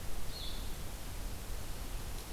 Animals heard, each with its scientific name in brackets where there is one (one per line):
Red-eyed Vireo (Vireo olivaceus)